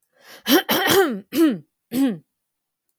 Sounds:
Throat clearing